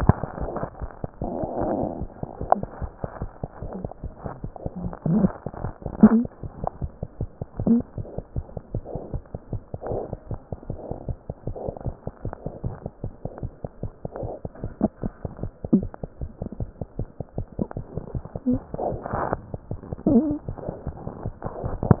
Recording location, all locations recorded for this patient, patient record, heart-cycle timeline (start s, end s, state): mitral valve (MV)
mitral valve (MV)
#Age: Neonate
#Sex: Male
#Height: 53.0 cm
#Weight: 4.43 kg
#Pregnancy status: False
#Murmur: Absent
#Murmur locations: nan
#Most audible location: nan
#Systolic murmur timing: nan
#Systolic murmur shape: nan
#Systolic murmur grading: nan
#Systolic murmur pitch: nan
#Systolic murmur quality: nan
#Diastolic murmur timing: nan
#Diastolic murmur shape: nan
#Diastolic murmur grading: nan
#Diastolic murmur pitch: nan
#Diastolic murmur quality: nan
#Outcome: Normal
#Campaign: 2015 screening campaign
0.00	8.15	unannotated
8.15	8.23	S2
8.23	8.32	diastole
8.32	8.45	S1
8.45	8.54	systole
8.54	8.61	S2
8.61	8.72	diastole
8.72	8.81	S1
8.81	8.92	systole
8.92	9.00	S2
9.00	9.10	diastole
9.10	9.22	S1
9.22	9.32	systole
9.32	9.39	S2
9.39	9.50	diastole
9.50	9.61	S1
9.61	9.69	systole
9.69	9.77	S2
9.77	9.89	diastole
9.89	9.99	S1
9.99	10.09	systole
10.09	10.17	S2
10.17	10.28	diastole
10.28	10.38	S1
10.38	10.48	systole
10.48	10.57	S2
10.57	10.67	diastole
10.67	10.77	S1
10.77	10.87	systole
10.87	10.95	S2
10.95	11.06	diastole
11.06	11.14	S1
11.14	11.27	systole
11.27	11.35	S2
11.35	11.45	diastole
11.45	11.56	S1
11.56	11.66	systole
11.66	11.72	S2
11.72	11.84	diastole
11.84	11.93	S1
11.93	12.05	systole
12.05	12.11	S2
12.11	12.22	diastole
12.22	12.31	S1
12.31	12.42	systole
12.42	12.51	S2
12.51	12.63	diastole
12.63	12.70	S1
12.70	12.82	systole
12.82	12.91	S2
12.91	13.01	diastole
13.01	13.11	S1
13.11	13.22	systole
13.22	13.30	S2
13.30	13.41	diastole
13.41	13.50	S1
13.50	13.63	systole
13.63	13.69	S2
13.69	13.81	diastole
13.81	13.91	S1
13.91	14.02	systole
14.02	14.10	S2
14.10	22.00	unannotated